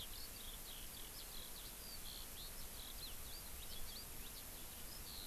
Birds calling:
Eurasian Skylark (Alauda arvensis)

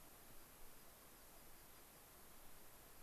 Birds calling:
American Pipit (Anthus rubescens)

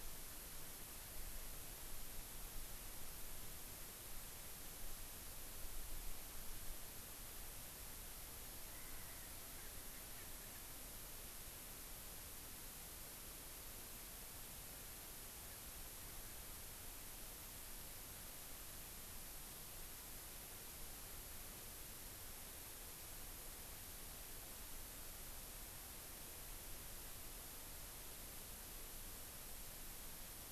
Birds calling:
Erckel's Francolin (Pternistis erckelii)

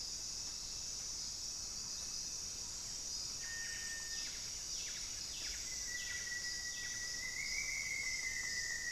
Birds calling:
Buff-breasted Wren (Cantorchilus leucotis)
Rufous-fronted Antthrush (Formicarius rufifrons)
Cinereous Tinamou (Crypturellus cinereus)

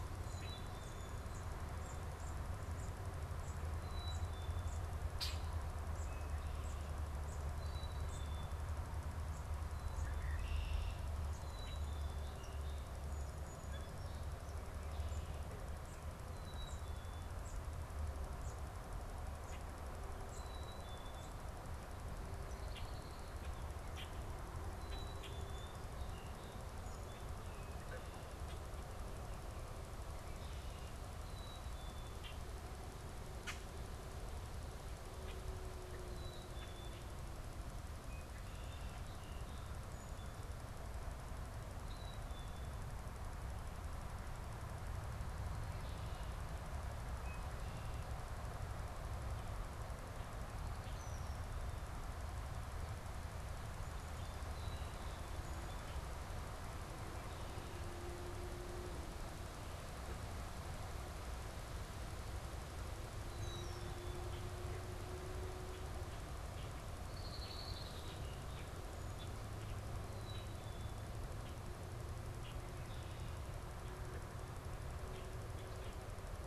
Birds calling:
Red-winged Blackbird (Agelaius phoeniceus)
Black-capped Chickadee (Poecile atricapillus)
Song Sparrow (Melospiza melodia)
unidentified bird

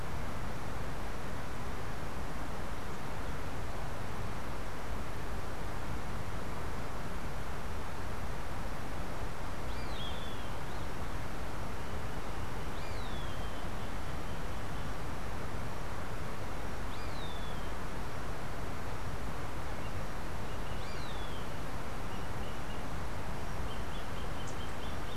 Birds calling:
Roadside Hawk (Rupornis magnirostris)

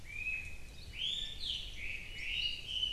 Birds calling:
Chinese Hwamei (Garrulax canorus)

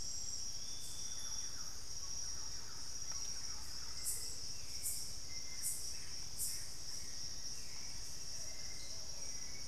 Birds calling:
Thrush-like Wren (Campylorhynchus turdinus)
Gray Antbird (Cercomacra cinerascens)
Hauxwell's Thrush (Turdus hauxwelli)
Plumbeous Pigeon (Patagioenas plumbea)

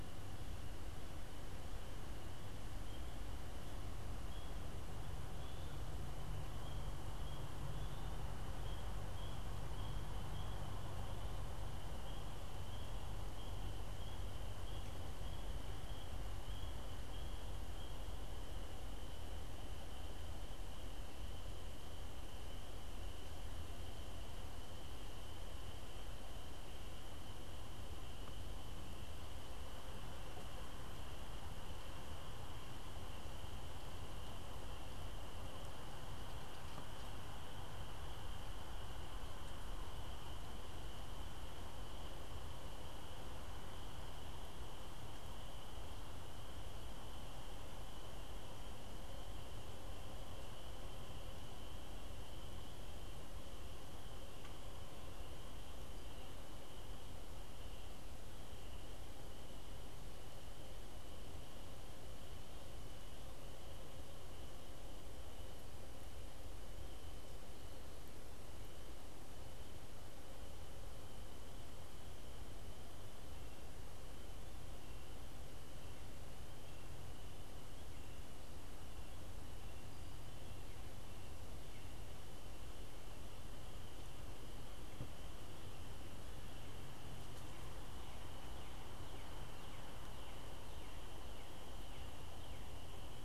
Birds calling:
Northern Cardinal (Cardinalis cardinalis)

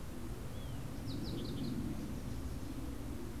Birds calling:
Fox Sparrow (Passerella iliaca)

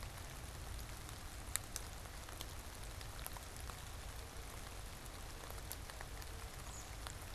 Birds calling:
American Robin (Turdus migratorius)

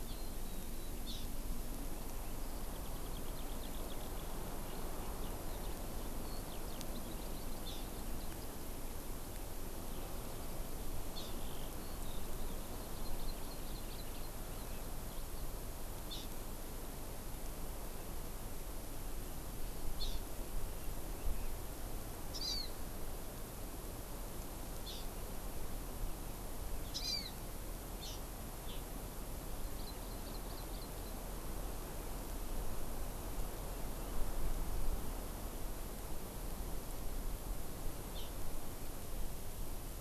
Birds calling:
Hawaii Amakihi (Chlorodrepanis virens)
Warbling White-eye (Zosterops japonicus)

